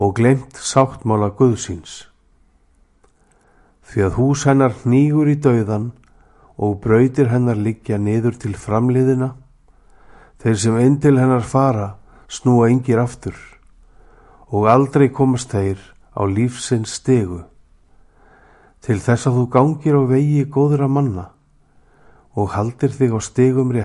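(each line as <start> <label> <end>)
0.0 A man is reading with a heavy voice. 2.1
3.8 A man is speaking slowly. 6.0
6.6 A man is speaking in a deep voice. 9.4
10.4 A man is reading with a heavy voice continuously. 13.5
14.5 A man is speaking slowly. 17.5
18.7 A man is speaking in a deep voice. 21.4
22.4 A man is speaking powerfully. 23.8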